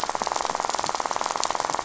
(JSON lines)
{"label": "biophony, rattle", "recorder": "SoundTrap 500"}